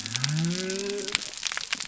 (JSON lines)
{"label": "biophony", "recorder": "SoundTrap 300"}